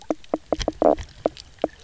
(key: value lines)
label: biophony, knock croak
recorder: SoundTrap 300